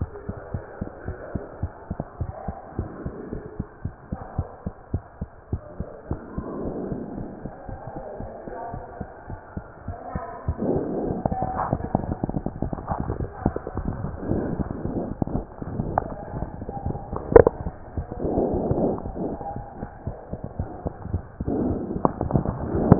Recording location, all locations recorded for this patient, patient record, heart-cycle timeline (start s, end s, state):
mitral valve (MV)
aortic valve (AV)+pulmonary valve (PV)+tricuspid valve (TV)+mitral valve (MV)
#Age: Child
#Sex: Male
#Height: 121.0 cm
#Weight: 24.9 kg
#Pregnancy status: False
#Murmur: Absent
#Murmur locations: nan
#Most audible location: nan
#Systolic murmur timing: nan
#Systolic murmur shape: nan
#Systolic murmur grading: nan
#Systolic murmur pitch: nan
#Systolic murmur quality: nan
#Diastolic murmur timing: nan
#Diastolic murmur shape: nan
#Diastolic murmur grading: nan
#Diastolic murmur pitch: nan
#Diastolic murmur quality: nan
#Outcome: Normal
#Campaign: 2015 screening campaign
0.00	0.08	S1
0.08	0.26	systole
0.26	0.36	S2
0.36	0.51	diastole
0.51	0.62	S1
0.62	0.78	systole
0.78	0.88	S2
0.88	1.04	diastole
1.04	1.16	S1
1.16	1.32	systole
1.32	1.42	S2
1.42	1.60	diastole
1.60	1.72	S1
1.72	1.87	systole
1.87	1.98	S2
1.98	2.18	diastole
2.18	2.28	S1
2.28	2.44	systole
2.44	2.56	S2
2.56	2.76	diastole
2.76	2.90	S1
2.90	3.02	systole
3.02	3.14	S2
3.14	3.30	diastole
3.30	3.40	S1
3.40	3.56	systole
3.56	3.66	S2
3.66	3.81	diastole
3.81	3.92	S1
3.92	4.08	systole
4.08	4.20	S2
4.20	4.36	diastole
4.36	4.46	S1
4.46	4.62	systole
4.62	4.72	S2
4.72	4.90	diastole
4.90	5.02	S1
5.02	5.18	systole
5.18	5.30	S2
5.30	5.50	diastole
5.50	5.60	S1
5.60	5.76	systole
5.76	5.88	S2
5.88	6.08	diastole
6.08	6.20	S1
6.20	6.34	systole
6.34	6.46	S2
6.46	6.62	diastole
6.62	6.76	S1
6.76	6.88	systole
6.88	7.02	S2
7.02	7.16	diastole
7.16	7.30	S1
7.30	7.42	systole
7.42	7.52	S2
7.52	7.68	diastole
7.68	7.78	S1
7.78	7.92	systole
7.92	8.02	S2
8.02	8.20	diastole
8.20	8.28	S1
8.28	8.44	systole
8.44	8.54	S2
8.54	8.72	diastole
8.72	8.82	S1
8.82	8.98	systole
8.98	9.08	S2
9.08	9.27	diastole
9.27	9.38	S1
9.38	9.54	systole
9.54	9.64	S2
9.64	9.86	diastole
9.86	9.96	S1
9.96	10.14	systole
10.14	10.24	S2
10.24	10.46	diastole
10.46	10.56	S1